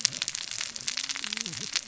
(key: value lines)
label: biophony, cascading saw
recorder: SoundTrap 600 or HydroMoth